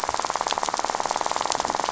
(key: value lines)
label: biophony, rattle
recorder: SoundTrap 500